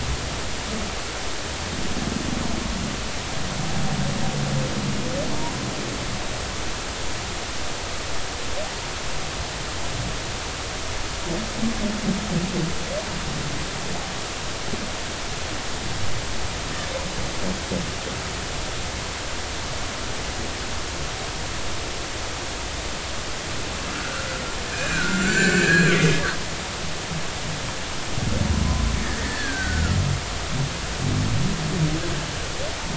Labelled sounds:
23.9	26.0	humpback whale, 1.3 to 7.5 kHz
29.2	30.0	humpback whale, 1.3 to 2.0 kHz

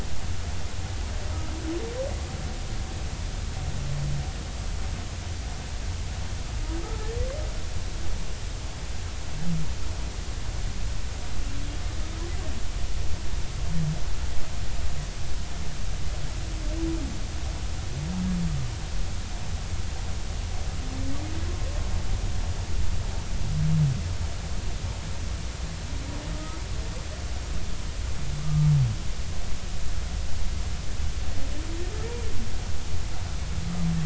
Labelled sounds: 6.8	7.1	humpback whale, 1.2 to 1.4 kHz
28.4	28.7	humpback whale, 1.1 to 1.3 kHz

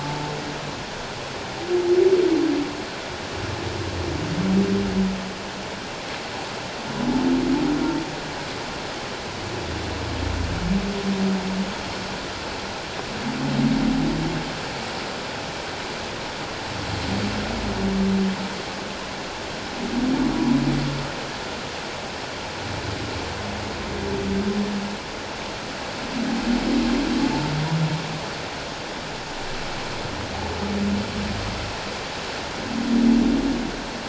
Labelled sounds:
0.0	0.3	humpback whale, 0.84 to 0.91 kHz

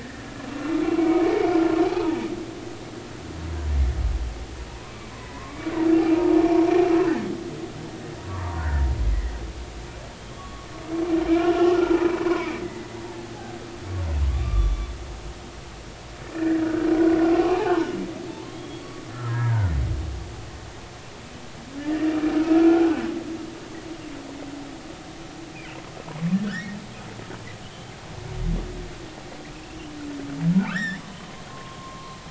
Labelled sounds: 0.0	2.2	humpback whale, 0.80 to 2.8 kHz
4.9	5.6	humpback whale, 0.96 to 2.4 kHz
8.3	9.3	humpback whale, 0.86 to 2.1 kHz
10.2	12.9	humpback whale, 0.96 to 3.4 kHz
13.3	14.9	humpback whale, 1.1 to 3.5 kHz
16.3	18.8	humpback whale, 0.80 to 3.4 kHz
19.3	19.7	humpback whale, 0.86 to 1.9 kHz
21.9	23.0	humpback whale, 1.2 to 2.8 kHz
26.4	26.8	humpback whale, 1.3 to 2.0 kHz
30.7	32.2	humpback whale, 0.93 to 5.7 kHz

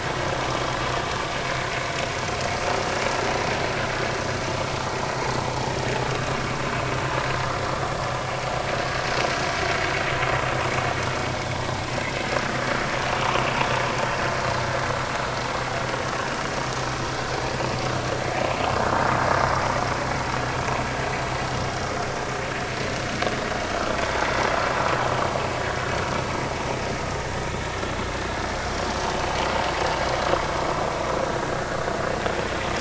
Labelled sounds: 14.4	14.6	vessel noise, 4.1 to 4.4 kHz

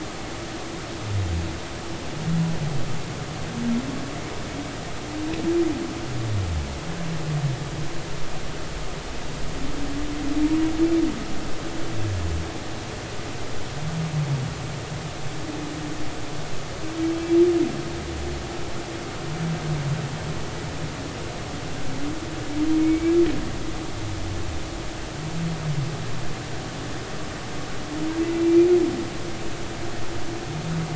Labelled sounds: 22.8	23.1	humpback whale, 2.2 to 2.4 kHz
28.3	28.7	humpback whale, 2.3 to 2.5 kHz

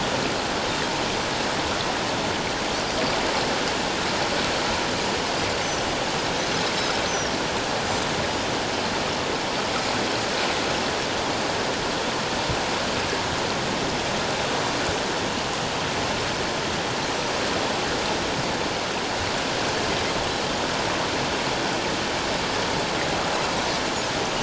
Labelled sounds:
7.0	7.4	Pacific white-sided dolphin, 5.4 to 6.2 kHz

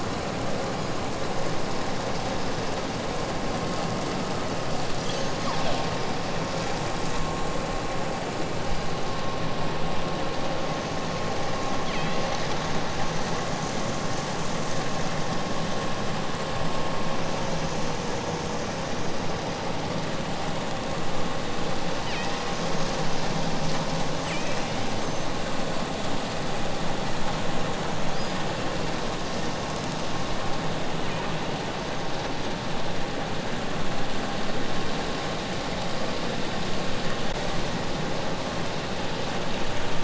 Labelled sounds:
0.6	1.1	killer whale, southern Alaska resident, 3.6 to 7.6 kHz
4.7	6.0	killer whale, southern Alaska resident, 0.88 to 8.0 kHz
11.5	12.9	killer whale, southern Alaska resident, 1.1 to 8.0 kHz
21.8	23.0	killer whale, southern Alaska resident, 1.1 to 4.8 kHz
24.0	24.9	killer whale, southern Alaska resident, 0.85 to 4.7 kHz
28.0	28.6	killer whale, southern Alaska resident, 4.5 to 5.1 kHz
30.9	31.6	killer whale, southern Alaska resident, 0.95 to 5.0 kHz

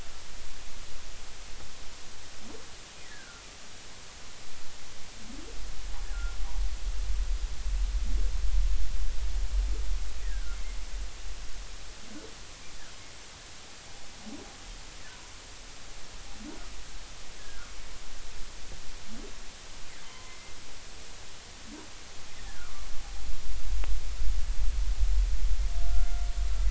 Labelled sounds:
3.1	3.4	humpback whale, 1.3 to 1.8 kHz
7.1	7.4	humpback whale, 1.3 to 1.5 kHz
10.2	10.6	humpback whale, 1.3 to 2.0 kHz
17.4	17.7	humpback whale, 1.3 to 1.8 kHz
20.1	20.5	humpback whale, 0.93 to 2.2 kHz
22.6	22.9	humpback whale, 1.1 to 1.5 kHz
25.8	26.2	humpback whale, 1.3 to 1.4 kHz

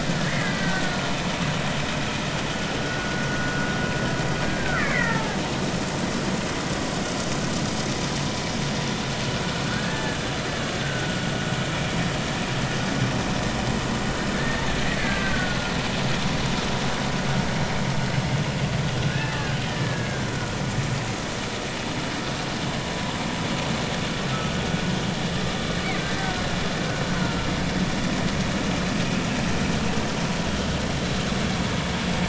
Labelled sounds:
0.4	1.1	killer whale, Bigg's (transient), 1.4 to 2.1 kHz
2.8	3.3	vessel noise, 1.4 to 1.5 kHz
4.4	5.4	killer whale, Bigg's (transient), 0.80 to 2.4 kHz
9.7	10.2	killer whale, Bigg's (transient), 1.3 to 1.8 kHz
10.8	11.1	killer whale, Bigg's (transient), 1.4 to 1.6 kHz
14.3	15.6	killer whale, Bigg's (transient), 1.4 to 1.9 kHz
19.1	20.6	killer whale, Bigg's (transient), 1.3 to 2.0 kHz
24.3	24.6	killer whale, Bigg's (transient), 1.2 to 1.3 kHz
26.0	26.4	killer whale, Bigg's (transient), 1.4 to 1.6 kHz
27.2	27.5	killer whale, Bigg's (transient), 1.3 to 1.4 kHz

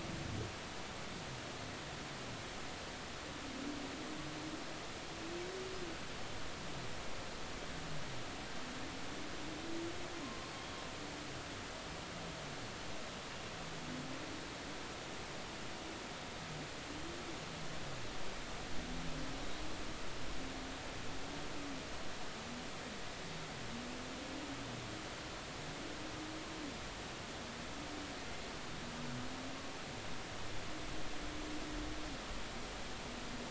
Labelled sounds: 10.2	10.8	humpback whale, 0.99 to 3.4 kHz

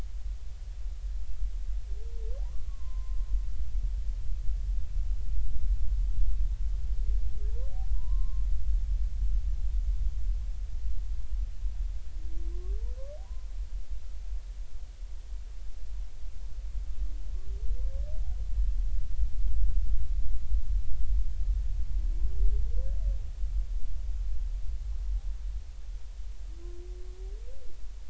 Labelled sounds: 2.4	3.3	humpback whale, 0.90 to 1.2 kHz
7.9	8.5	humpback whale, 0.93 to 1.1 kHz

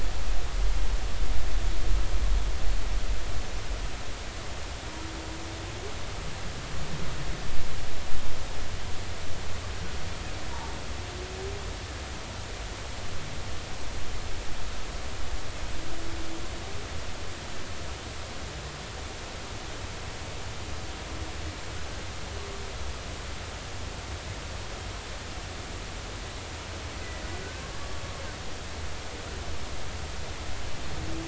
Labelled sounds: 10.5	10.7	humpback whale, 0.83 to 1.0 kHz
27.0	27.7	humpback whale, 1.4 to 2.1 kHz

